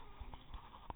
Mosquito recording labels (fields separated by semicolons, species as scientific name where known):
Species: mosquito; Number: one; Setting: cup